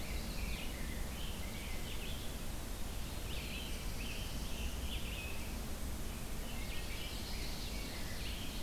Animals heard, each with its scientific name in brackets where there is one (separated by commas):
Ovenbird (Seiurus aurocapilla), Black-throated Blue Warbler (Setophaga caerulescens), Scarlet Tanager (Piranga olivacea), Rose-breasted Grosbeak (Pheucticus ludovicianus), Red-eyed Vireo (Vireo olivaceus), Chestnut-sided Warbler (Setophaga pensylvanica)